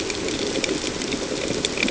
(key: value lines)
label: ambient
recorder: HydroMoth